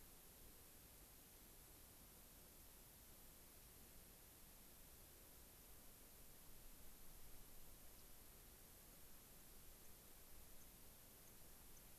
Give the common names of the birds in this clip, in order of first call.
Yellow-rumped Warbler, White-crowned Sparrow